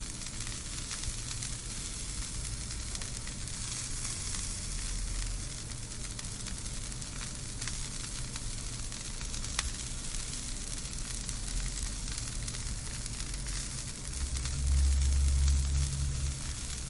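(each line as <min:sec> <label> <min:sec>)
0:00.0 Low-pitched, quiet background noise. 0:16.9
0:00.0 Something is burning in a fire. 0:16.9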